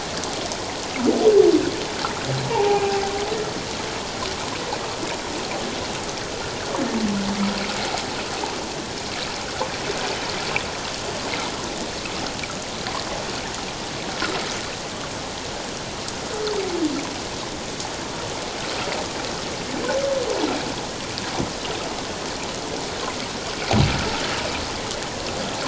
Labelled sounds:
2.5	2.8	humpback whale, 0.78 to 1.0 kHz

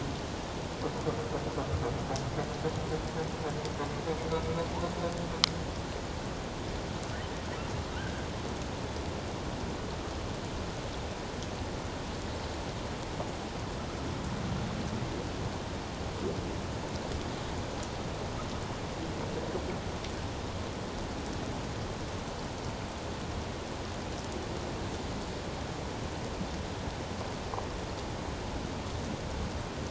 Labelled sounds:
8.0	8.3	humpback whale, 1.4 to 1.7 kHz

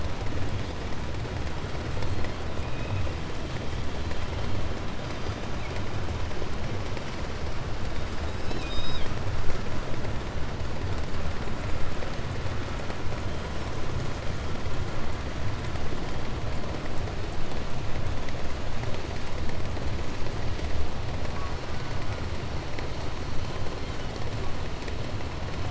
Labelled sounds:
1.9	3.2	killer whale, 1.5 to 4.6 kHz
4.9	6.1	killer whale, 1.4 to 6.3 kHz
7.7	9.3	killer whale, 1.2 to 8.0 kHz
13.1	13.7	killer whale, 2.8 to 3.4 kHz
21.1	22.4	killer whale, 0.90 to 1.9 kHz
23.4	24.7	killer whale, 0.81 to 8.0 kHz

